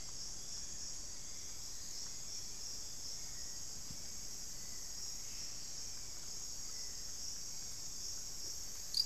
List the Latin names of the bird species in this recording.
Turdus hauxwelli, unidentified bird